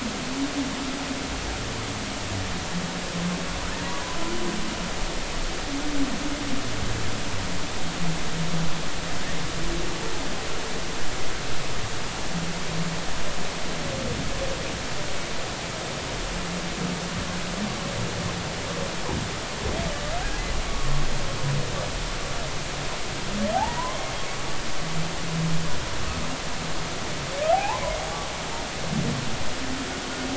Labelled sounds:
23.5	24.0	humpback whale, 0.80 to 1.2 kHz
27.5	27.8	humpback whale, 0.80 to 1.1 kHz

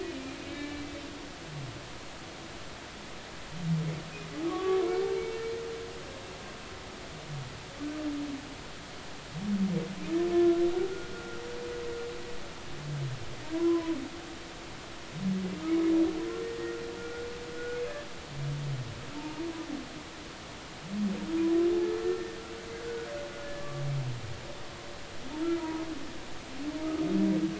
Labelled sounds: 0.0	0.9	humpback whale, 1.7 to 2.5 kHz
4.5	4.8	humpback whale, 1.1 to 1.2 kHz
11.1	11.4	humpback whale, 1.3 to 1.5 kHz
13.5	14.0	humpback whale, 0.93 to 1.1 kHz
16.4	17.8	humpback whale, 1.3 to 1.9 kHz
23.4	23.7	humpback whale, 1.7 to 1.8 kHz
25.4	25.8	humpback whale, 0.90 to 1.4 kHz

